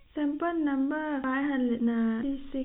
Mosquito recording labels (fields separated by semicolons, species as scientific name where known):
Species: no mosquito; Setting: cup